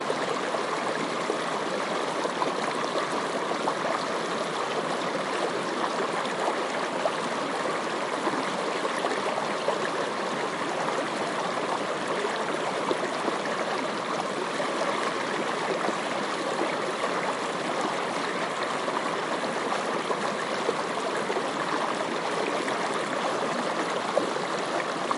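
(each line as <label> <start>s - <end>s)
Water streaming. 0.1s - 25.1s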